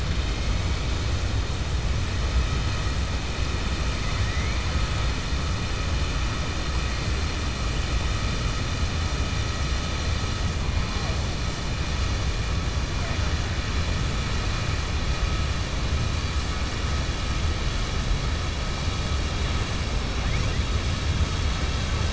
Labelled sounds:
4.0	4.6	killer whale, 1.0 to 2.3 kHz

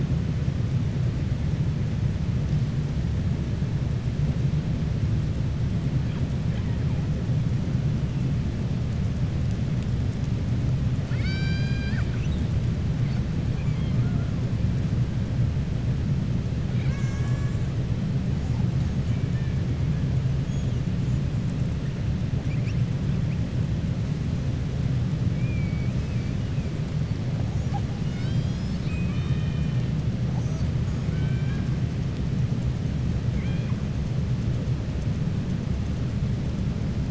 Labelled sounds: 11.0	12.5	killer whale, southern resident, 1.4 to 7.8 kHz
13.5	14.3	killer whale, southern resident, 0.47 to 3.3 kHz
19.0	19.5	killer whale, southern resident, 1.7 to 3.1 kHz
31.0	31.7	killer whale, southern resident, 1.1 to 3.7 kHz
33.3	33.8	killer whale, southern resident, 1.0 to 4.2 kHz

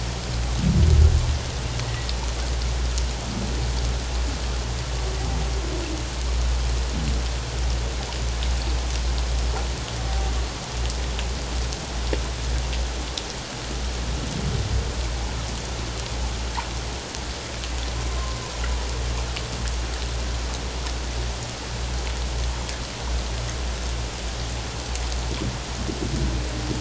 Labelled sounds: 1.8	2.1	humpback whale, 1.8 to 2.0 kHz
18.1	18.4	humpback whale, 1.0 to 1.1 kHz

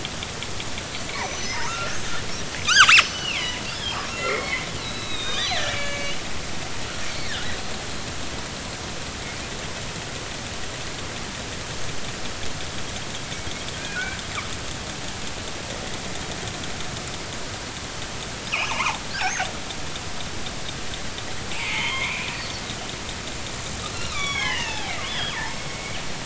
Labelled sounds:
1.1	2.1	killer whale, northern resident, G clan, 1.1 to 6.1 kHz
2.6	6.1	killer whale, northern resident, G clan, 0.83 to 7.0 kHz
7.1	7.4	killer whale, northern resident, G clan, 4.0 to 4.6 kHz
13.2	13.5	killer whale, northern resident, G clan, 2.2 to 2.3 kHz
13.8	14.2	killer whale, northern resident, G clan, 1.4 to 1.7 kHz
18.7	19.0	killer whale, northern resident, G clan, 0.80 to 1.5 kHz
21.5	22.6	killer whale, northern resident, G clan, 0.83 to 4.6 kHz
23.9	25.4	killer whale, northern resident, G clan, 0.80 to 8.0 kHz
25.7	26.0	killer whale, northern resident, G clan, 2.1 to 2.3 kHz

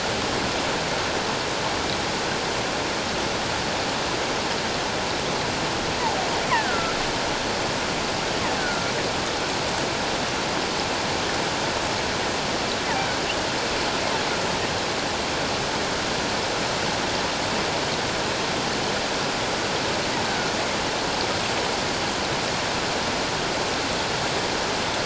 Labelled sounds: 6.5	6.9	killer whale, offshore, call OFF17, 1.2 to 2.3 kHz
8.6	8.9	killer whale, offshore, call OFF17, 1.3 to 1.6 kHz

